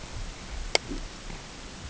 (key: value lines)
label: ambient
recorder: HydroMoth